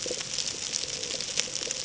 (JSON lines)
{"label": "ambient", "recorder": "HydroMoth"}